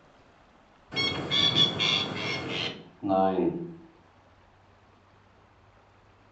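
At 0.91 seconds, a bird can be heard. Then at 3.01 seconds, a voice says "nine." A soft noise sits about 35 dB below the sounds.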